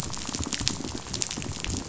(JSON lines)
{"label": "biophony, rattle", "recorder": "SoundTrap 500"}